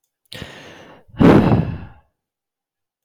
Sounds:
Sigh